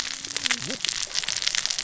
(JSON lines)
{"label": "biophony, cascading saw", "recorder": "SoundTrap 600 or HydroMoth"}